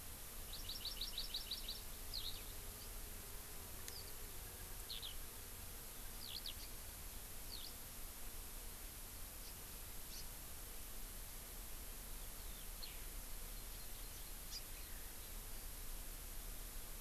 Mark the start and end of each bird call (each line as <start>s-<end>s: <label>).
0.5s-1.8s: Hawaii Amakihi (Chlorodrepanis virens)
2.1s-2.5s: Eurasian Skylark (Alauda arvensis)
3.9s-4.1s: Eurasian Skylark (Alauda arvensis)
4.9s-5.2s: Eurasian Skylark (Alauda arvensis)
6.2s-6.6s: Eurasian Skylark (Alauda arvensis)
6.6s-6.7s: Hawaii Amakihi (Chlorodrepanis virens)
7.5s-7.8s: Eurasian Skylark (Alauda arvensis)
9.5s-9.6s: House Finch (Haemorhous mexicanus)
10.1s-10.3s: House Finch (Haemorhous mexicanus)
12.4s-13.0s: Eurasian Skylark (Alauda arvensis)
13.6s-14.4s: Red-billed Leiothrix (Leiothrix lutea)
14.5s-14.7s: Hawaii Amakihi (Chlorodrepanis virens)